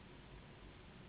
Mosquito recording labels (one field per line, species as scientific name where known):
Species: Anopheles gambiae s.s.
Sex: female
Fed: unfed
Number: one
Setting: insect culture